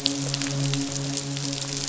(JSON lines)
{"label": "biophony, midshipman", "recorder": "SoundTrap 500"}